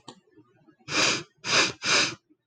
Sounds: Sniff